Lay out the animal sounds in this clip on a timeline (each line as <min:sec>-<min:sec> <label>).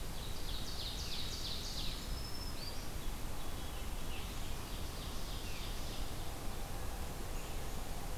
0:00.0-0:02.1 Ovenbird (Seiurus aurocapilla)
0:01.8-0:02.9 Black-throated Green Warbler (Setophaga virens)
0:04.2-0:06.3 Ovenbird (Seiurus aurocapilla)